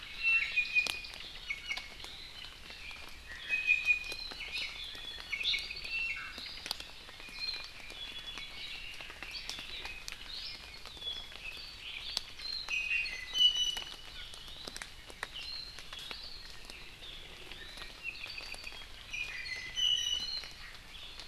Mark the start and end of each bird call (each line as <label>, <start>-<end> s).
Iiwi (Drepanis coccinea), 0.2-2.0 s
Iiwi (Drepanis coccinea), 3.5-4.3 s
Iiwi (Drepanis coccinea), 4.8-5.4 s
Iiwi (Drepanis coccinea), 5.8-6.4 s
Iiwi (Drepanis coccinea), 7.2-7.7 s
Red-billed Leiothrix (Leiothrix lutea), 8.4-10.9 s
Warbling White-eye (Zosterops japonicus), 12.4-12.7 s
Iiwi (Drepanis coccinea), 12.7-14.2 s
Warbling White-eye (Zosterops japonicus), 15.4-15.8 s
Apapane (Himatione sanguinea), 18.0-18.9 s
Iiwi (Drepanis coccinea), 19.1-20.7 s